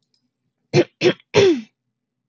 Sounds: Throat clearing